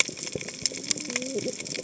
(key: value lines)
label: biophony, cascading saw
recorder: HydroMoth